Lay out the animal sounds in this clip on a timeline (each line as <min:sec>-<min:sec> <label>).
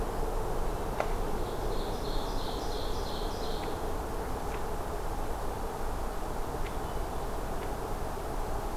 0:00.5-0:04.0 Ovenbird (Seiurus aurocapilla)
0:06.3-0:08.2 Hermit Thrush (Catharus guttatus)